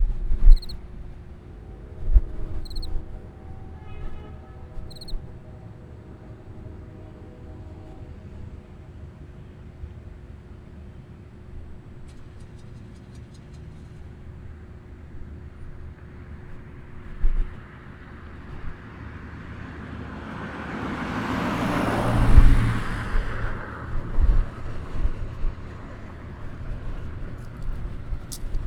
Does a loud car drive by?
yes